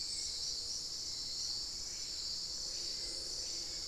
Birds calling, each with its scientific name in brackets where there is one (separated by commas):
Hauxwell's Thrush (Turdus hauxwelli), Screaming Piha (Lipaugus vociferans)